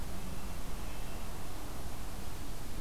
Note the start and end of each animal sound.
0.0s-1.3s: Red-breasted Nuthatch (Sitta canadensis)

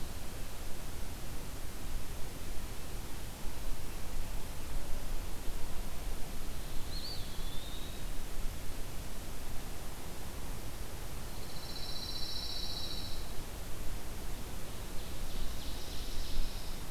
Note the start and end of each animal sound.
6.2s-7.9s: Pine Warbler (Setophaga pinus)
6.7s-8.4s: Eastern Wood-Pewee (Contopus virens)
11.1s-13.8s: Pine Warbler (Setophaga pinus)
14.8s-16.9s: Ovenbird (Seiurus aurocapilla)

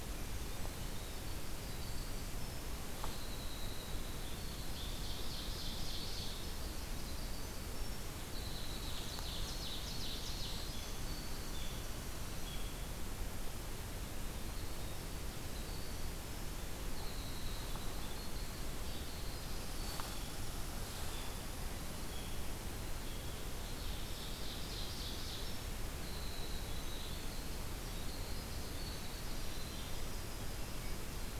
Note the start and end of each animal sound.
0.3s-5.1s: Winter Wren (Troglodytes hiemalis)
4.1s-6.6s: Ovenbird (Seiurus aurocapilla)
6.9s-12.6s: Winter Wren (Troglodytes hiemalis)
8.3s-10.7s: Ovenbird (Seiurus aurocapilla)
14.5s-20.9s: Winter Wren (Troglodytes hiemalis)
20.0s-23.6s: unidentified call
23.6s-25.8s: Ovenbird (Seiurus aurocapilla)
25.9s-31.4s: Winter Wren (Troglodytes hiemalis)

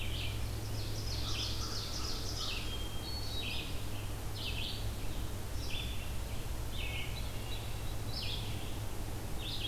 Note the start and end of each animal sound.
0.0s-9.7s: Red-eyed Vireo (Vireo olivaceus)
0.5s-2.6s: Ovenbird (Seiurus aurocapilla)
1.2s-2.6s: American Crow (Corvus brachyrhynchos)
2.5s-4.0s: Hermit Thrush (Catharus guttatus)
6.7s-8.0s: Hermit Thrush (Catharus guttatus)

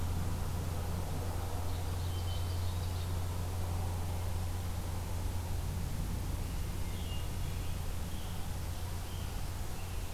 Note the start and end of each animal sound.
1.2s-3.6s: Ovenbird (Seiurus aurocapilla)
2.0s-3.0s: Hermit Thrush (Catharus guttatus)
6.7s-10.1s: Scarlet Tanager (Piranga olivacea)

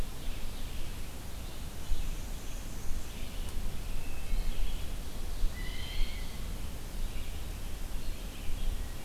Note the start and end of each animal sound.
0.0s-1.4s: Ovenbird (Seiurus aurocapilla)
0.0s-9.0s: Red-eyed Vireo (Vireo olivaceus)
1.7s-3.2s: Black-and-white Warbler (Mniotilta varia)
3.7s-4.8s: Wood Thrush (Hylocichla mustelina)
5.4s-6.4s: Blue Jay (Cyanocitta cristata)

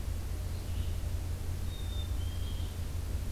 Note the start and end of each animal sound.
0.4s-3.3s: Red-eyed Vireo (Vireo olivaceus)
1.6s-2.7s: Black-capped Chickadee (Poecile atricapillus)

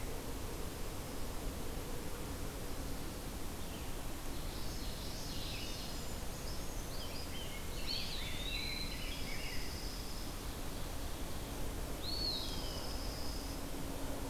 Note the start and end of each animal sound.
4.2s-5.9s: Common Yellowthroat (Geothlypis trichas)
5.8s-7.4s: Brown Creeper (Certhia americana)
6.7s-9.9s: Rose-breasted Grosbeak (Pheucticus ludovicianus)
7.8s-9.1s: Eastern Wood-Pewee (Contopus virens)
8.8s-10.4s: Dark-eyed Junco (Junco hyemalis)
11.8s-12.9s: Eastern Wood-Pewee (Contopus virens)
12.2s-13.6s: Dark-eyed Junco (Junco hyemalis)

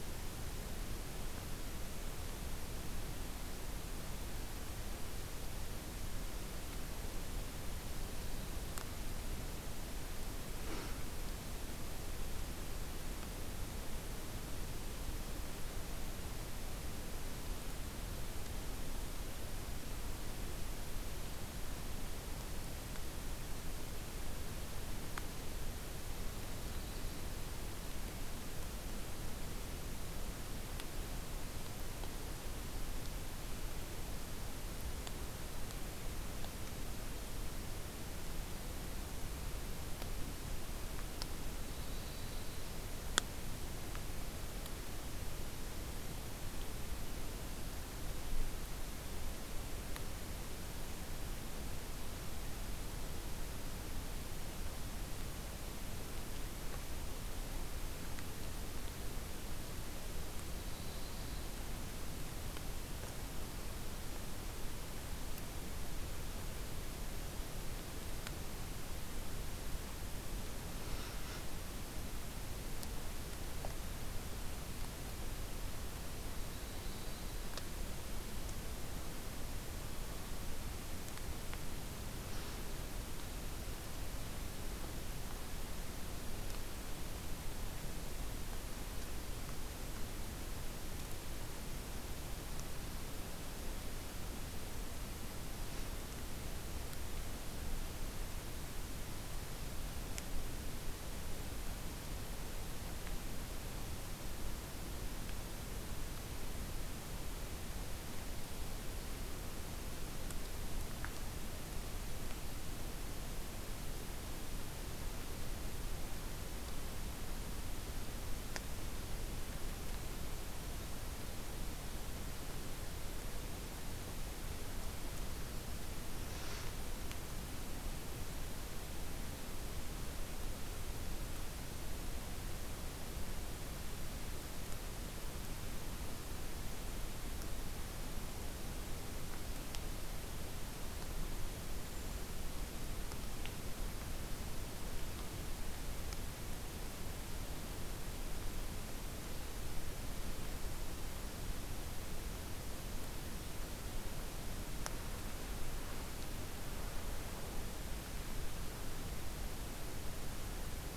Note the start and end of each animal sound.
26.1s-27.5s: Yellow-rumped Warbler (Setophaga coronata)
41.4s-42.9s: Yellow-rumped Warbler (Setophaga coronata)
60.2s-61.7s: Yellow-rumped Warbler (Setophaga coronata)
76.1s-77.6s: Yellow-rumped Warbler (Setophaga coronata)

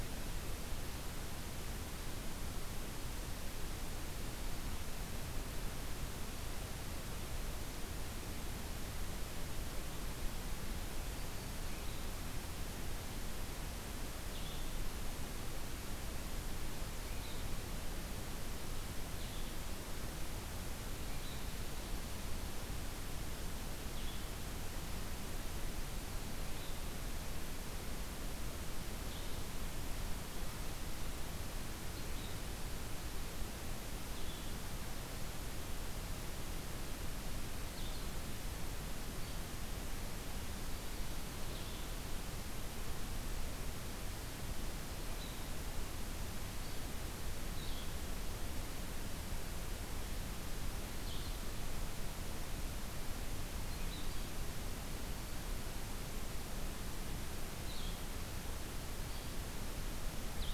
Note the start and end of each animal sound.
11.0s-60.5s: Blue-headed Vireo (Vireo solitarius)

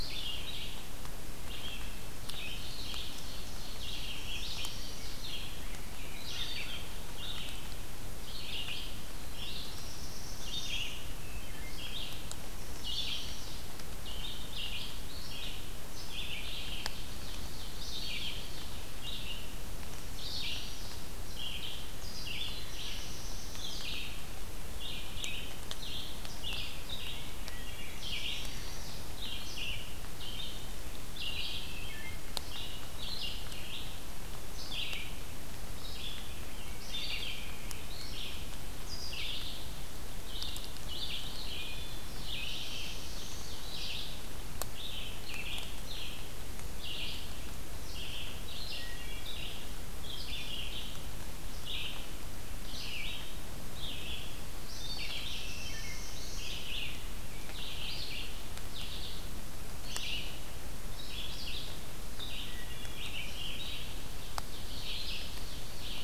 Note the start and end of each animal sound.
0.0s-19.5s: Red-eyed Vireo (Vireo olivaceus)
2.3s-4.5s: Ovenbird (Seiurus aurocapilla)
4.7s-7.0s: Rose-breasted Grosbeak (Pheucticus ludovicianus)
6.4s-7.6s: American Crow (Corvus brachyrhynchos)
9.1s-11.1s: Black-throated Blue Warbler (Setophaga caerulescens)
11.2s-11.9s: Wood Thrush (Hylocichla mustelina)
12.5s-13.5s: Chestnut-sided Warbler (Setophaga pensylvanica)
16.6s-18.2s: Ovenbird (Seiurus aurocapilla)
20.0s-66.0s: Red-eyed Vireo (Vireo olivaceus)
22.0s-24.1s: Black-throated Blue Warbler (Setophaga caerulescens)
27.4s-28.1s: Wood Thrush (Hylocichla mustelina)
27.9s-29.1s: Chestnut-sided Warbler (Setophaga pensylvanica)
31.7s-32.3s: Wood Thrush (Hylocichla mustelina)
41.5s-42.1s: Wood Thrush (Hylocichla mustelina)
41.8s-43.7s: Black-throated Blue Warbler (Setophaga caerulescens)
48.7s-49.5s: Wood Thrush (Hylocichla mustelina)
54.6s-56.8s: Black-throated Blue Warbler (Setophaga caerulescens)
55.6s-56.2s: Wood Thrush (Hylocichla mustelina)
62.4s-63.1s: Wood Thrush (Hylocichla mustelina)

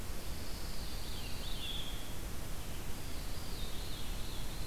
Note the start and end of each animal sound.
0.0s-1.6s: Pine Warbler (Setophaga pinus)
0.8s-2.3s: Veery (Catharus fuscescens)
2.8s-4.7s: Veery (Catharus fuscescens)

